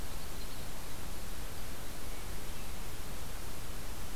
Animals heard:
forest ambience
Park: Acadia National Park